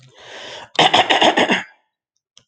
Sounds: Throat clearing